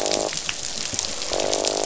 {"label": "biophony, croak", "recorder": "SoundTrap 500"}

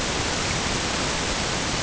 {"label": "ambient", "recorder": "HydroMoth"}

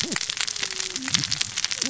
{"label": "biophony, cascading saw", "recorder": "SoundTrap 600 or HydroMoth"}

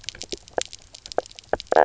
{"label": "biophony, knock croak", "recorder": "SoundTrap 300"}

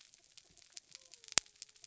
{"label": "biophony", "recorder": "SoundTrap 300"}
{"label": "anthrophony, mechanical", "recorder": "SoundTrap 300"}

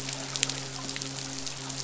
{"label": "biophony, midshipman", "recorder": "SoundTrap 500"}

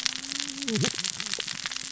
{"label": "biophony, cascading saw", "recorder": "SoundTrap 600 or HydroMoth"}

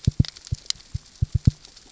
{"label": "biophony, knock", "recorder": "SoundTrap 600 or HydroMoth"}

